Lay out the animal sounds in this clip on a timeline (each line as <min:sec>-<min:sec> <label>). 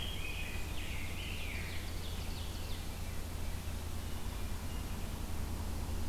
0:00.0-0:02.2 Rose-breasted Grosbeak (Pheucticus ludovicianus)
0:00.7-0:03.1 Ovenbird (Seiurus aurocapilla)
0:02.0-0:03.2 Veery (Catharus fuscescens)